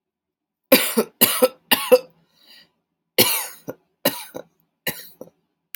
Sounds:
Cough